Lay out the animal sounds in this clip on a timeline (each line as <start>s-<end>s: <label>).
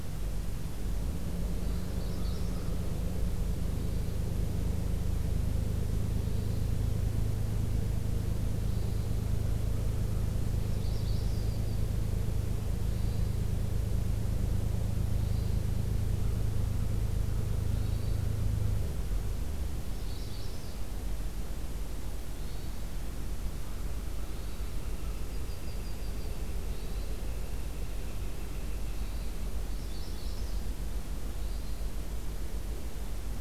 1.3s-1.9s: Hermit Thrush (Catharus guttatus)
1.8s-2.7s: Magnolia Warbler (Setophaga magnolia)
2.1s-2.7s: American Crow (Corvus brachyrhynchos)
3.7s-4.2s: Hermit Thrush (Catharus guttatus)
6.1s-6.7s: Hermit Thrush (Catharus guttatus)
8.5s-9.1s: Hermit Thrush (Catharus guttatus)
10.5s-11.8s: Yellow-rumped Warbler (Setophaga coronata)
10.6s-11.5s: Magnolia Warbler (Setophaga magnolia)
12.9s-13.5s: Hermit Thrush (Catharus guttatus)
15.1s-15.7s: Hermit Thrush (Catharus guttatus)
17.6s-18.2s: Hermit Thrush (Catharus guttatus)
19.9s-20.8s: Magnolia Warbler (Setophaga magnolia)
20.0s-20.6s: Hermit Thrush (Catharus guttatus)
22.4s-22.8s: Hermit Thrush (Catharus guttatus)
23.5s-25.4s: American Crow (Corvus brachyrhynchos)
24.2s-24.8s: Hermit Thrush (Catharus guttatus)
24.5s-29.4s: Northern Flicker (Colaptes auratus)
25.1s-26.6s: Yellow-rumped Warbler (Setophaga coronata)
26.6s-27.3s: Hermit Thrush (Catharus guttatus)
28.9s-29.3s: Hermit Thrush (Catharus guttatus)
29.7s-30.7s: Magnolia Warbler (Setophaga magnolia)
31.2s-31.8s: Hermit Thrush (Catharus guttatus)